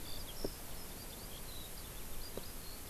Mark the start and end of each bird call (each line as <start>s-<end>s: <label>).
0.0s-2.9s: Eurasian Skylark (Alauda arvensis)